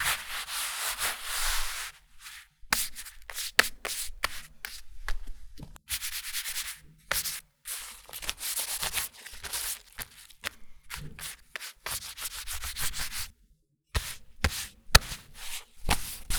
Is it a repetitive sound?
yes